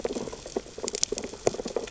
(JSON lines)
{"label": "biophony, sea urchins (Echinidae)", "recorder": "SoundTrap 600 or HydroMoth"}